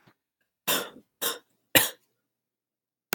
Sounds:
Cough